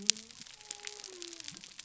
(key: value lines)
label: biophony
recorder: SoundTrap 300